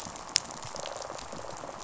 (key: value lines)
label: biophony, rattle response
recorder: SoundTrap 500